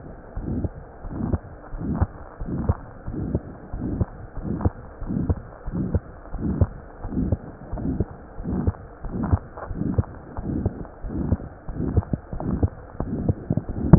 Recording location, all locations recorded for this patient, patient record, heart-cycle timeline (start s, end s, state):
aortic valve (AV)
aortic valve (AV)+pulmonary valve (PV)+tricuspid valve (TV)+mitral valve (MV)
#Age: Child
#Sex: Male
#Height: 130.0 cm
#Weight: 23.2 kg
#Pregnancy status: False
#Murmur: Present
#Murmur locations: aortic valve (AV)+mitral valve (MV)+pulmonary valve (PV)+tricuspid valve (TV)
#Most audible location: aortic valve (AV)
#Systolic murmur timing: Mid-systolic
#Systolic murmur shape: Diamond
#Systolic murmur grading: III/VI or higher
#Systolic murmur pitch: Medium
#Systolic murmur quality: Harsh
#Diastolic murmur timing: nan
#Diastolic murmur shape: nan
#Diastolic murmur grading: nan
#Diastolic murmur pitch: nan
#Diastolic murmur quality: nan
#Outcome: Abnormal
#Campaign: 2015 screening campaign
0.00	0.32	unannotated
0.32	0.42	S1
0.42	0.62	systole
0.62	0.70	S2
0.70	1.01	diastole
1.01	1.10	S1
1.10	1.30	systole
1.30	1.39	S2
1.39	1.70	diastole
1.70	1.80	S1
1.80	1.99	systole
1.99	2.07	S2
2.07	2.38	diastole
2.38	2.47	S1
2.47	2.67	systole
2.67	2.75	S2
2.75	3.06	diastole
3.06	3.13	S1
3.13	3.32	systole
3.32	3.40	S2
3.40	3.70	diastole
3.70	3.79	S1
3.79	3.97	systole
3.97	4.07	S2
4.07	4.35	diastole
4.35	4.42	S1
4.42	4.62	systole
4.62	4.70	S2
4.70	4.99	diastole
4.99	5.08	S1
5.08	5.26	systole
5.26	5.38	S2
5.38	5.65	diastole
5.65	5.72	S1
5.72	5.93	systole
5.93	6.00	S2
6.00	6.30	diastole
6.30	6.40	S1
6.40	6.57	systole
6.57	6.69	S2
6.69	7.01	diastole
7.01	7.09	S1
7.09	13.98	unannotated